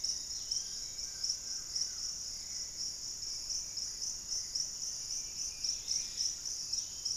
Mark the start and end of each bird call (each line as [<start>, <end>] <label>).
[0.00, 1.18] Yellow-margined Flycatcher (Tolmomyias assimilis)
[0.00, 7.16] Hauxwell's Thrush (Turdus hauxwelli)
[0.98, 2.28] Collared Trogon (Trogon collaris)
[4.78, 6.38] unidentified bird
[5.48, 6.58] Dusky-capped Greenlet (Pachysylvia hypoxantha)